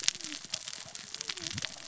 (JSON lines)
{"label": "biophony, cascading saw", "recorder": "SoundTrap 600 or HydroMoth"}